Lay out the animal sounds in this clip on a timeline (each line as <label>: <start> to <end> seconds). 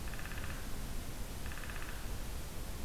Downy Woodpecker (Dryobates pubescens): 0.0 to 0.7 seconds
Downy Woodpecker (Dryobates pubescens): 1.4 to 2.1 seconds